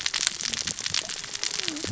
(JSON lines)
{"label": "biophony, cascading saw", "recorder": "SoundTrap 600 or HydroMoth"}